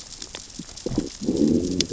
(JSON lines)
{"label": "biophony, growl", "recorder": "SoundTrap 600 or HydroMoth"}